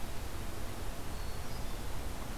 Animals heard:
forest ambience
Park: Marsh-Billings-Rockefeller National Historical Park